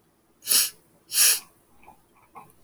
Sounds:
Sniff